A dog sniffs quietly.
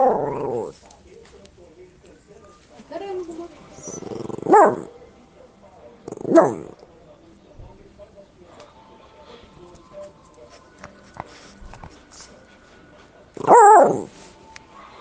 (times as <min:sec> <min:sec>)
0:10.0 0:12.3